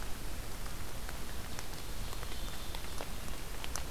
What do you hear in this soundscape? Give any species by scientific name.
forest ambience